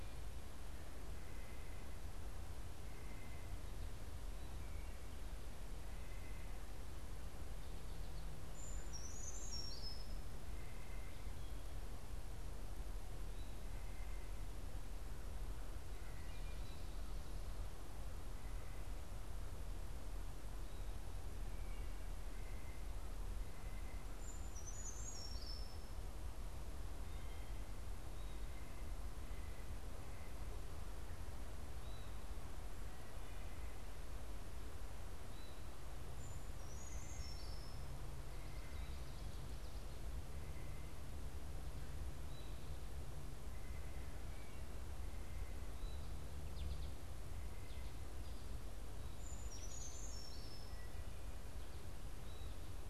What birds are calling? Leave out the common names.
Sitta carolinensis, Certhia americana, Hylocichla mustelina, Spinus tristis